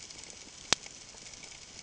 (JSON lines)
{"label": "ambient", "recorder": "HydroMoth"}